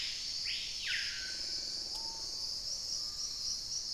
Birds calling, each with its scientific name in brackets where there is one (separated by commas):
Hauxwell's Thrush (Turdus hauxwelli), Screaming Piha (Lipaugus vociferans)